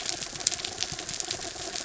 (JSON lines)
{"label": "anthrophony, mechanical", "recorder": "SoundTrap 300"}